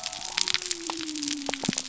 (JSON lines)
{"label": "biophony", "recorder": "SoundTrap 300"}